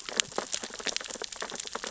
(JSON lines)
{"label": "biophony, sea urchins (Echinidae)", "recorder": "SoundTrap 600 or HydroMoth"}